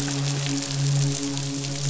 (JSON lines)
{"label": "biophony, midshipman", "recorder": "SoundTrap 500"}